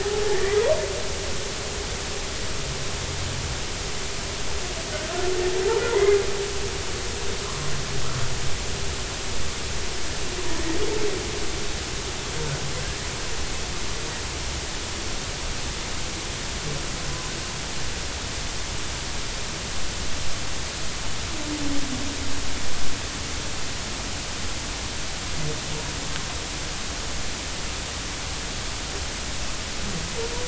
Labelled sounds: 0.3	0.6	humpback whale, 1.7 to 2.1 kHz
5.9	6.2	humpback whale, 1.9 to 2.2 kHz
7.4	7.7	humpback whale, 0.99 to 1.2 kHz

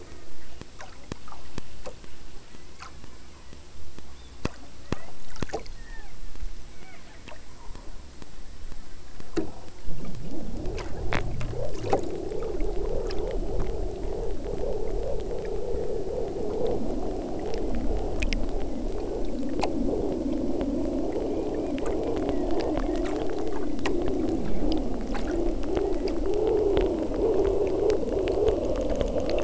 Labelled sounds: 0.0	0.8	killer whale, southern Alaska resident, 0.39 to 3.1 kHz
2.3	3.8	killer whale, southern Alaska resident, 0.81 to 4.7 kHz
4.1	4.5	killer whale, southern Alaska resident, 3.2 to 5.0 kHz
4.8	5.2	killer whale, southern Alaska resident, 0.34 to 3.9 kHz
5.7	6.2	killer whale, southern Alaska resident, 0.49 to 3.8 kHz
6.6	7.2	killer whale, southern Alaska resident, 0.39 to 3.3 kHz

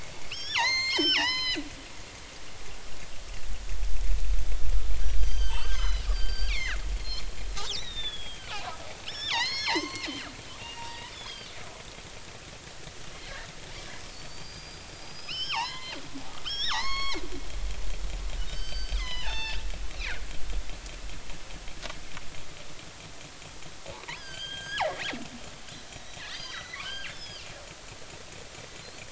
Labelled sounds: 0.3	1.6	killer whale, northern resident, G clan, 0.80 to 7.5 kHz
5.2	7.2	killer whale, northern resident, G clan, 0.83 to 7.9 kHz
7.7	8.5	killer whale, northern resident, G clan, 1.6 to 6.0 kHz
9.1	10.1	killer whale, northern resident, G clan, 0.80 to 6.5 kHz
10.6	11.5	killer whale, northern resident, G clan, 0.83 to 5.1 kHz
14.1	17.2	killer whale, northern resident, G clan, 0.80 to 6.6 kHz
18.5	19.6	killer whale, northern resident, G clan, 0.80 to 6.3 kHz
19.9	20.2	killer whale, northern resident, G clan, 1.4 to 4.3 kHz
24.2	24.9	killer whale, northern resident, G clan, 1.5 to 6.5 kHz
26.2	27.5	killer whale, northern resident, G clan, 1.4 to 5.4 kHz

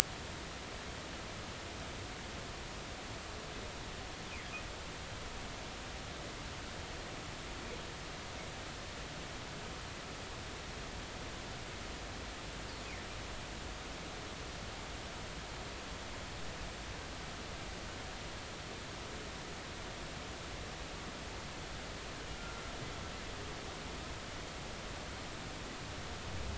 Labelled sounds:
22.3	22.7	humpback whale, 1.3 to 1.4 kHz

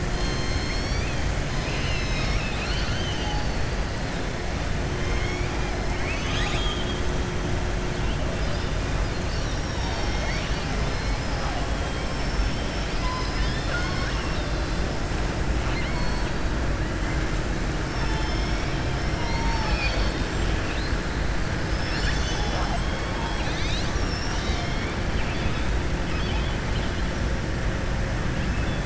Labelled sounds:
5.0	5.5	killer whale, southern resident, 1.4 to 3.3 kHz
5.9	7.0	killer whale, southern resident, 1.1 to 7.7 kHz
15.6	16.3	killer whale, southern resident, 1.2 to 4.7 kHz
17.8	20.3	killer whale, southern resident, 0.88 to 6.4 kHz
25.1	25.7	killer whale, southern resident, 2.3 to 3.8 kHz

